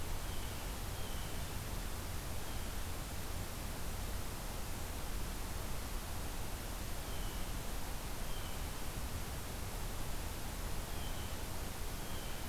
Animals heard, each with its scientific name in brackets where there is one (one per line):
Blue Jay (Cyanocitta cristata)